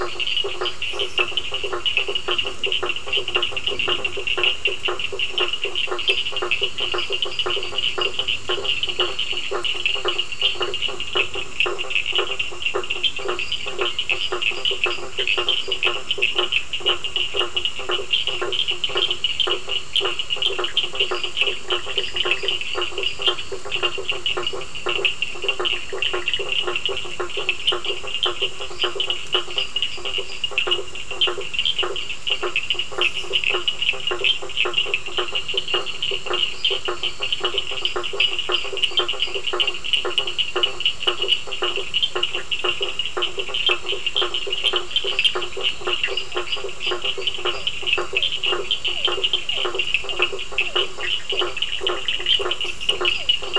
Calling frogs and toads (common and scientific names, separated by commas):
lesser tree frog (Dendropsophus minutus), two-colored oval frog (Elachistocleis bicolor), blacksmith tree frog (Boana faber), Cochran's lime tree frog (Sphaenorhynchus surdus), Bischoff's tree frog (Boana bischoffi), Physalaemus cuvieri